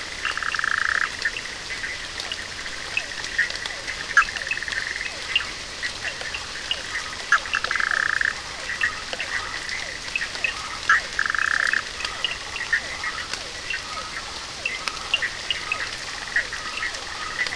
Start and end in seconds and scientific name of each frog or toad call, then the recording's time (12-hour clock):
0.0	17.5	Boana bischoffi
0.1	15.8	Sphaenorhynchus surdus
1.9	17.5	Physalaemus cuvieri
4.0	6.8	Elachistocleis bicolor
5.0	17.5	Boana prasina
8.6	10.8	Elachistocleis bicolor
13.1	17.5	Elachistocleis bicolor
12:30am